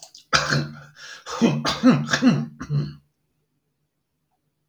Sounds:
Throat clearing